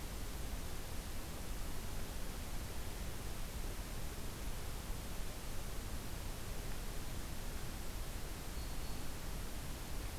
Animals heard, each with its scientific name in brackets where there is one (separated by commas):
Black-throated Green Warbler (Setophaga virens)